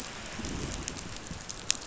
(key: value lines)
label: biophony, growl
recorder: SoundTrap 500